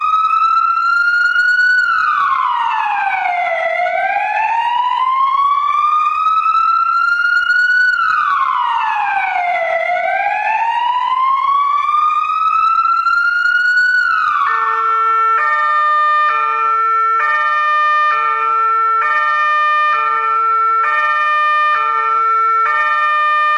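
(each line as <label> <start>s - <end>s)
Emergency sirens from a fire truck sound. 0.0s - 23.6s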